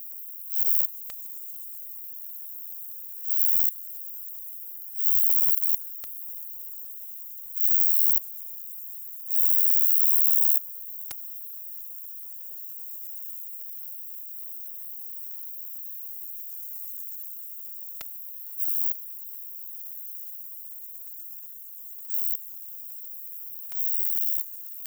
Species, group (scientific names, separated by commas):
Vichetia oblongicollis, Orthoptera